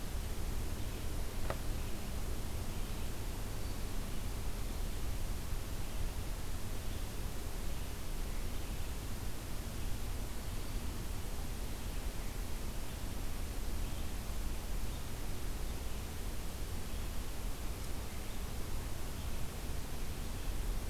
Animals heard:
forest ambience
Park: Marsh-Billings-Rockefeller National Historical Park